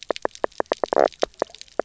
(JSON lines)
{"label": "biophony, knock croak", "recorder": "SoundTrap 300"}